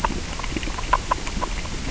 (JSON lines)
{"label": "biophony, grazing", "recorder": "SoundTrap 600 or HydroMoth"}